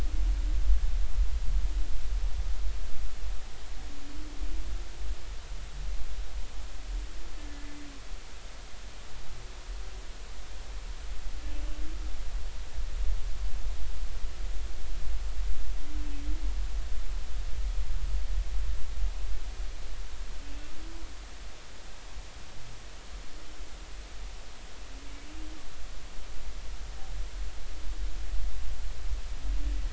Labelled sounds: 7.4	7.7	humpback whale, 1.6 to 1.8 kHz

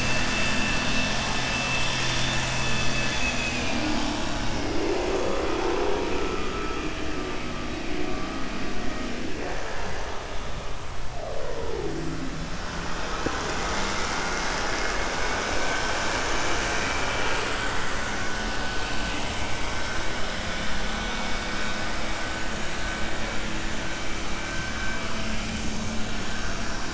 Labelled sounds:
3.2	3.9	vessel noise, 1.5 to 4.0 kHz

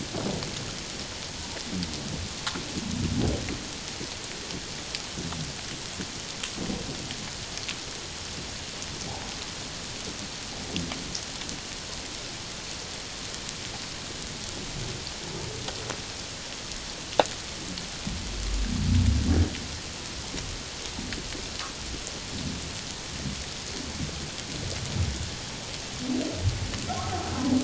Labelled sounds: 26.9	27.2	humpback whale, 0.78 to 0.81 kHz

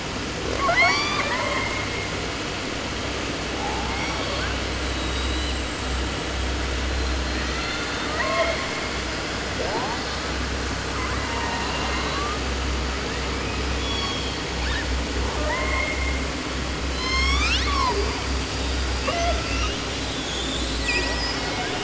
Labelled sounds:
0.4	2.1	killer whale, southern resident, 0.30 to 8.0 kHz
3.5	4.6	killer whale, 0.31 to 6.2 kHz
4.8	5.7	killer whale, southern resident, 1.5 to 7.8 kHz
7.3	8.7	killer whale, 0.30 to 6.4 kHz
9.5	10.4	killer whale, 0.30 to 5.2 kHz
10.9	12.4	killer whale, 0.30 to 4.8 kHz
13.7	16.3	killer whale, 0.30 to 7.6 kHz
16.8	18.2	killer whale, 0.26 to 8.0 kHz
19.0	19.9	killer whale, 0.26 to 6.4 kHz
20.0	21.7	killer whale, southern resident, J pod, call S01, 0.30 to 8.0 kHz

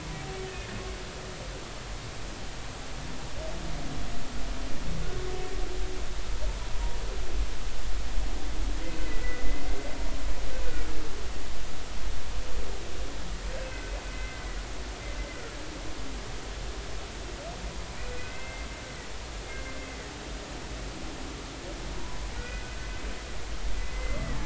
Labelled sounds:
0.4	0.8	humpback whale, 1.7 to 1.9 kHz
9.0	10.9	humpback whale, 1.9 to 2.5 kHz
13.5	14.5	humpback whale, 1.5 to 2.1 kHz
18.2	18.7	humpback whale, 1.5 to 2.1 kHz
19.5	19.8	humpback whale, 2.0 to 2.2 kHz
21.9	22.8	humpback whale, 0.90 to 2.6 kHz
23.8	24.4	humpback whale, 1.7 to 2.1 kHz

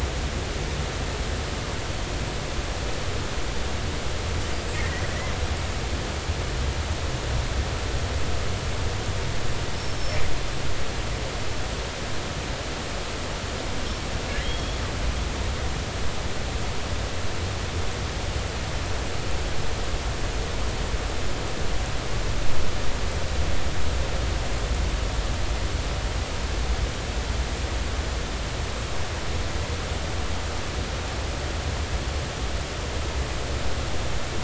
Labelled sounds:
4.7	5.0	killer whale, northern resident, G clan, 1.8 to 2.0 kHz
9.8	10.2	killer whale, northern resident, G clan, 5.2 to 5.7 kHz
14.4	14.8	killer whale, northern resident, G clan, call N23i, 3.1 to 5.7 kHz

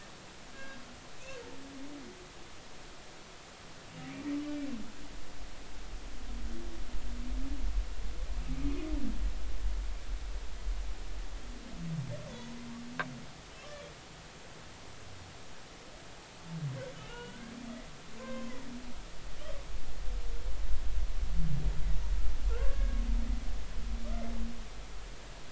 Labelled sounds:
1.5	1.8	humpback whale, 1.5 to 1.7 kHz
8.6	8.9	humpback whale, 2.4 to 2.7 kHz
12.3	12.5	humpback whale, 1.9 to 2.0 kHz
17.1	17.5	humpback whale, 1.4 to 3.0 kHz
18.2	18.6	humpback whale, 0.99 to 1.6 kHz
22.5	23.0	humpback whale, 1.0 to 1.7 kHz

